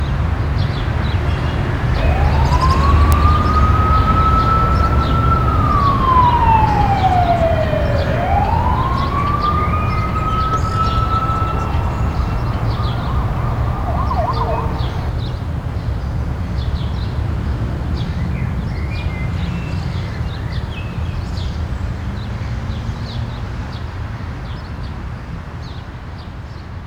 What noise can be heard from a car?
siren